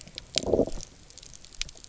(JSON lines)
{"label": "biophony, low growl", "recorder": "SoundTrap 300"}